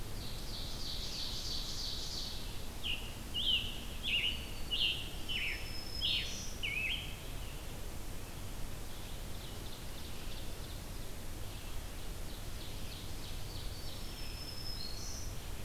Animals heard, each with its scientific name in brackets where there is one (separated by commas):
Scarlet Tanager (Piranga olivacea), Black-throated Green Warbler (Setophaga virens), Red-eyed Vireo (Vireo olivaceus), Ovenbird (Seiurus aurocapilla)